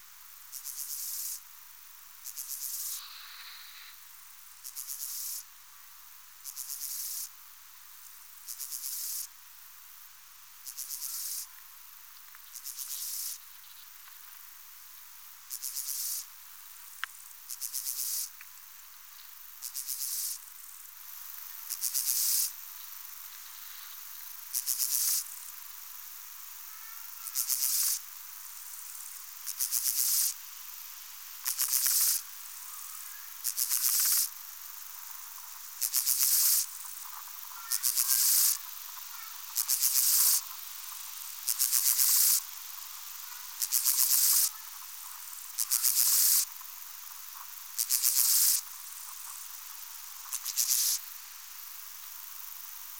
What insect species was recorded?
Chorthippus dorsatus